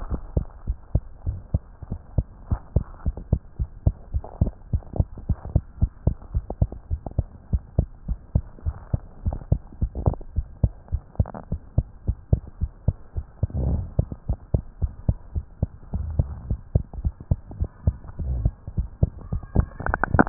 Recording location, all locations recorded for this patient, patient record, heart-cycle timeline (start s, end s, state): tricuspid valve (TV)
aortic valve (AV)+pulmonary valve (PV)+tricuspid valve (TV)+mitral valve (MV)
#Age: Child
#Sex: Female
#Height: 99.0 cm
#Weight: 12.7 kg
#Pregnancy status: False
#Murmur: Absent
#Murmur locations: nan
#Most audible location: nan
#Systolic murmur timing: nan
#Systolic murmur shape: nan
#Systolic murmur grading: nan
#Systolic murmur pitch: nan
#Systolic murmur quality: nan
#Diastolic murmur timing: nan
#Diastolic murmur shape: nan
#Diastolic murmur grading: nan
#Diastolic murmur pitch: nan
#Diastolic murmur quality: nan
#Outcome: Normal
#Campaign: 2015 screening campaign
0.08	0.22	S1
0.22	0.34	systole
0.34	0.48	S2
0.48	0.66	diastole
0.66	0.76	S1
0.76	0.92	systole
0.92	1.06	S2
1.06	1.26	diastole
1.26	1.40	S1
1.40	1.50	systole
1.50	1.64	S2
1.64	1.88	diastole
1.88	2.00	S1
2.00	2.14	systole
2.14	2.28	S2
2.28	2.48	diastole
2.48	2.60	S1
2.60	2.72	systole
2.72	2.86	S2
2.86	3.04	diastole
3.04	3.16	S1
3.16	3.30	systole
3.30	3.40	S2
3.40	3.58	diastole
3.58	3.68	S1
3.68	3.82	systole
3.82	3.96	S2
3.96	4.12	diastole
4.12	4.24	S1
4.24	4.38	systole
4.38	4.54	S2
4.54	4.72	diastole
4.72	4.82	S1
4.82	4.92	systole
4.92	5.06	S2
5.06	5.24	diastole
5.24	5.38	S1
5.38	5.52	systole
5.52	5.62	S2
5.62	5.78	diastole
5.78	5.92	S1
5.92	6.04	systole
6.04	6.16	S2
6.16	6.34	diastole
6.34	6.44	S1
6.44	6.58	systole
6.58	6.70	S2
6.70	6.90	diastole
6.90	7.00	S1
7.00	7.12	systole
7.12	7.26	S2
7.26	7.48	diastole
7.48	7.62	S1
7.62	7.76	systole
7.76	7.90	S2
7.90	8.08	diastole
8.08	8.18	S1
8.18	8.34	systole
8.34	8.46	S2
8.46	8.63	diastole
8.63	8.76	S1
8.76	8.90	systole
8.90	9.02	S2
9.02	9.24	diastole
9.24	9.40	S1
9.40	9.50	systole
9.50	9.60	S2
9.60	9.80	diastole
9.80	9.92	S1
9.92	10.04	systole
10.04	10.18	S2
10.18	10.36	diastole
10.36	10.46	S1
10.46	10.60	systole
10.60	10.72	S2
10.72	10.90	diastole
10.90	11.02	S1
11.02	11.16	systole
11.16	11.28	S2
11.28	11.50	diastole
11.50	11.60	S1
11.60	11.74	systole
11.74	11.88	S2
11.88	12.06	diastole
12.06	12.18	S1
12.18	12.28	systole
12.28	12.42	S2
12.42	12.60	diastole
12.60	12.72	S1
12.72	12.84	systole
12.84	12.98	S2
12.98	13.14	diastole
13.14	13.26	S1
13.26	13.41	systole
13.41	13.50	S2
13.50	13.64	diastole
13.64	13.82	S1
13.82	13.94	systole
13.94	14.08	S2
14.08	14.28	diastole
14.28	14.38	S1
14.38	14.50	systole
14.50	14.62	S2
14.62	14.80	diastole
14.80	14.92	S1
14.92	15.04	systole
15.04	15.18	S2
15.18	15.34	diastole
15.34	15.44	S1
15.44	15.58	systole
15.58	15.72	S2
15.72	15.92	diastole
15.92	16.03	S1
16.03	16.18	systole
16.18	16.32	S2
16.32	16.48	diastole
16.48	16.60	S1
16.60	16.70	systole
16.70	16.82	S2
16.82	16.98	diastole
16.98	17.14	S1
17.14	17.26	systole
17.26	17.40	S2
17.40	17.56	diastole
17.56	17.68	S1
17.68	17.85	systole
17.85	17.95	S2
17.95	18.07	diastole